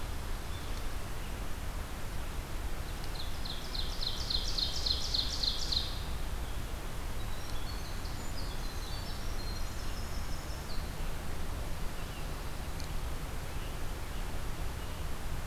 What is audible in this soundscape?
Ovenbird, Winter Wren